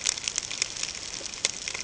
{"label": "ambient", "recorder": "HydroMoth"}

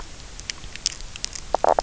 {"label": "biophony, knock croak", "recorder": "SoundTrap 300"}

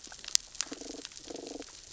{"label": "biophony, damselfish", "recorder": "SoundTrap 600 or HydroMoth"}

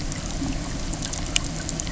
{"label": "anthrophony, boat engine", "recorder": "SoundTrap 300"}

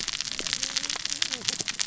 {"label": "biophony, cascading saw", "recorder": "SoundTrap 600 or HydroMoth"}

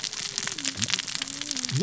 {"label": "biophony, cascading saw", "recorder": "SoundTrap 600 or HydroMoth"}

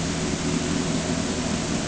{"label": "anthrophony, boat engine", "recorder": "HydroMoth"}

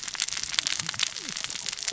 {"label": "biophony, cascading saw", "recorder": "SoundTrap 600 or HydroMoth"}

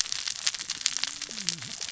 {"label": "biophony, cascading saw", "recorder": "SoundTrap 600 or HydroMoth"}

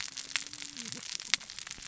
{"label": "biophony, cascading saw", "recorder": "SoundTrap 600 or HydroMoth"}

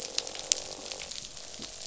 {"label": "biophony, croak", "recorder": "SoundTrap 500"}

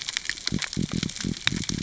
{"label": "biophony", "recorder": "SoundTrap 600 or HydroMoth"}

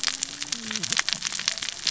{"label": "biophony, cascading saw", "recorder": "SoundTrap 600 or HydroMoth"}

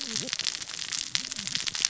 {"label": "biophony, cascading saw", "recorder": "SoundTrap 600 or HydroMoth"}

